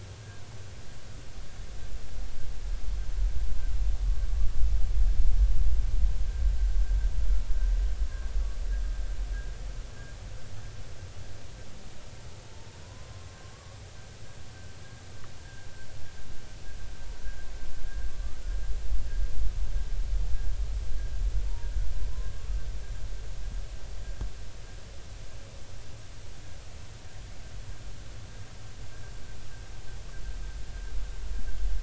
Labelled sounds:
12.8	13.8	humpback whale, 0.96 to 1.2 kHz
21.5	21.7	humpback whale, 0.90 to 0.99 kHz
22.1	22.5	humpback whale, 0.99 to 1.2 kHz

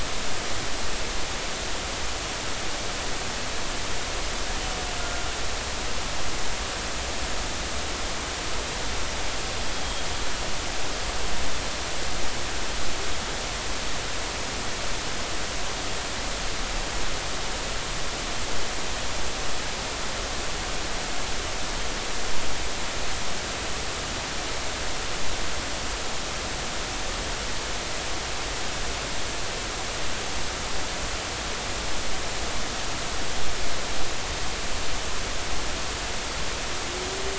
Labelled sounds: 5.0	5.3	humpback whale, 1.3 to 1.5 kHz

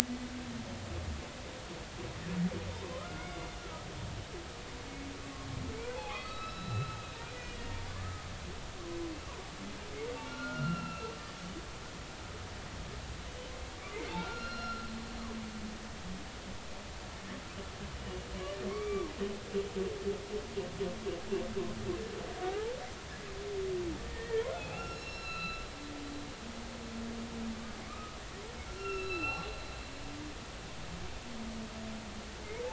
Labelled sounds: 2.8	3.9	humpback whale, 0.96 to 1.5 kHz
5.8	7.0	humpback whale, 0.80 to 5.3 kHz
7.3	8.2	humpback whale, 0.99 to 2.0 kHz
10.1	11.1	humpback whale, 1.3 to 3.0 kHz
14.2	14.9	humpback whale, 1.3 to 5.6 kHz
18.7	19.1	humpback whale, 1.0 to 2.4 kHz
22.4	22.7	humpback whale, 0.80 to 0.96 kHz
24.0	25.6	humpback whale, 0.80 to 5.6 kHz
27.9	29.5	humpback whale, 1.1 to 5.6 kHz

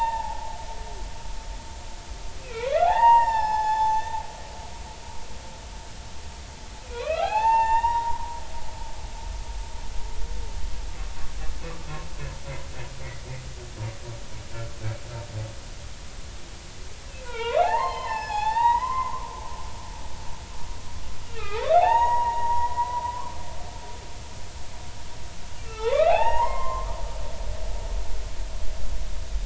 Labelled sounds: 2.4	4.1	humpback whale, 0.80 to 6.4 kHz
6.9	8.4	humpback whale, 0.80 to 6.4 kHz
17.2	19.1	humpback whale, 0.80 to 5.4 kHz
21.2	23.4	humpback whale, 0.80 to 6.8 kHz
25.6	27.0	humpback whale, 0.80 to 3.9 kHz

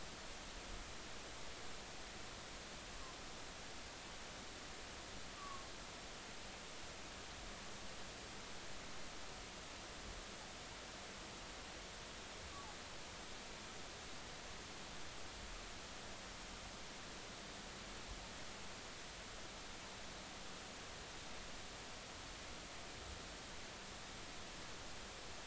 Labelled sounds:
5.4	5.7	humpback whale, 0.96 to 1.2 kHz

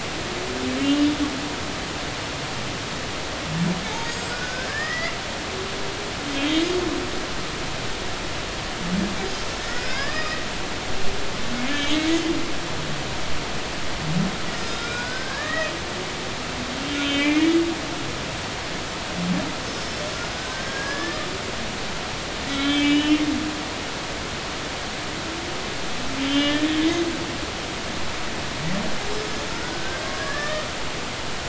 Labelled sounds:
0.8	1.1	humpback whale, 2.7 to 3.0 kHz
4.1	5.1	humpback whale, 1.4 to 7.7 kHz
6.3	6.6	humpback whale, 3.1 to 3.4 kHz
9.6	10.4	humpback whale, 1.0 to 5.6 kHz
11.6	12.0	humpback whale, 2.0 to 3.3 kHz
14.5	15.7	humpback whale, 1.1 to 8.0 kHz
16.9	17.5	humpback whale, 1.9 to 3.7 kHz
20.3	21.3	humpback whale, 1.6 to 5.5 kHz
22.5	23.2	humpback whale, 2.1 to 3.7 kHz
26.3	26.7	humpback whale, 1.6 to 3.5 kHz
29.5	30.6	humpback whale, 1.1 to 1.9 kHz

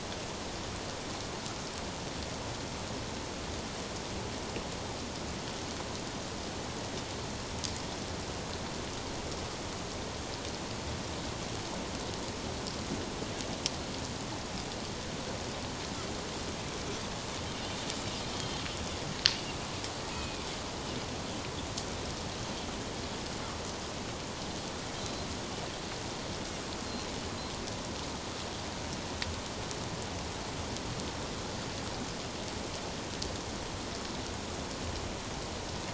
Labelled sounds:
18.2	18.6	Pacific white-sided dolphin, 3.0 to 3.3 kHz
20.1	20.5	Pacific white-sided dolphin, 2.3 to 2.6 kHz
25.0	25.3	Pacific white-sided dolphin, 3.9 to 4.2 kHz

